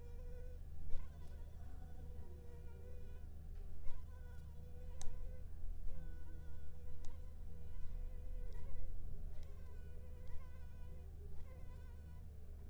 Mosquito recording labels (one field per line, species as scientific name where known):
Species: Anopheles arabiensis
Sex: female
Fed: unfed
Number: one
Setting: cup